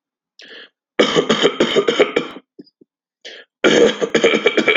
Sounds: Cough